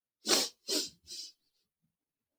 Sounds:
Sniff